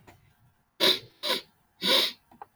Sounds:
Sniff